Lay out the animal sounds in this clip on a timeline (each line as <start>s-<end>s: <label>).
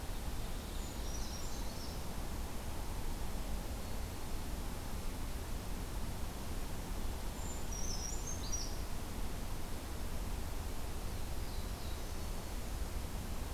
0.1s-1.6s: Ovenbird (Seiurus aurocapilla)
0.6s-2.1s: Brown Creeper (Certhia americana)
7.2s-8.9s: Brown Creeper (Certhia americana)
10.8s-12.5s: Black-throated Blue Warbler (Setophaga caerulescens)